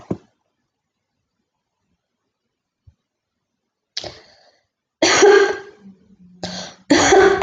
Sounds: Cough